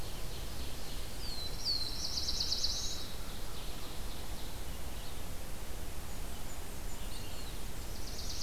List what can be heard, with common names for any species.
Ovenbird, Red-eyed Vireo, Black-throated Blue Warbler, Blackburnian Warbler, Eastern Wood-Pewee